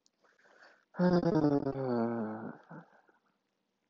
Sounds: Sigh